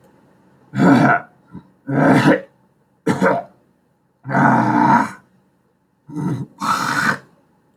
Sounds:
Throat clearing